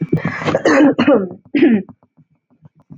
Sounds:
Throat clearing